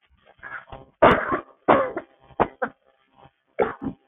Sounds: Cough